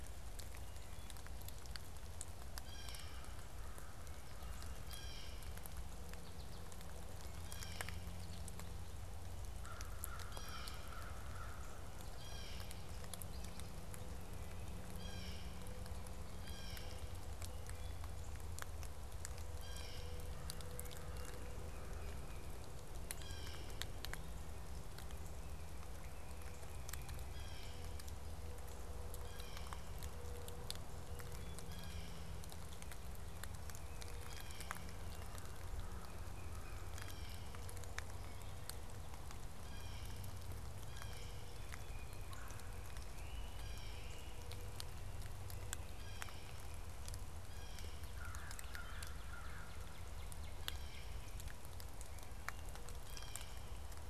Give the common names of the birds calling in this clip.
Blue Jay, American Crow, American Goldfinch, Tufted Titmouse, Red-bellied Woodpecker, Northern Cardinal